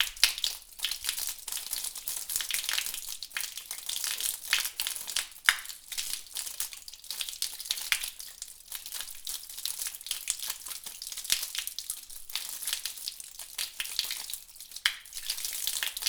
Does the water make a popping sound as it drops down?
yes